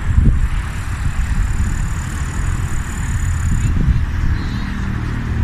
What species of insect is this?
Tettigonia cantans